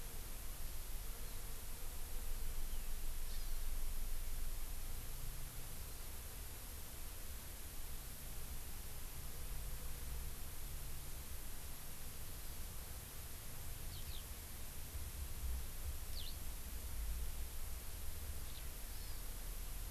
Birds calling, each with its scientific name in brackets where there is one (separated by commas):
Hawaii Amakihi (Chlorodrepanis virens), Eurasian Skylark (Alauda arvensis)